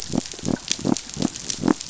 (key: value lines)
label: biophony
recorder: SoundTrap 500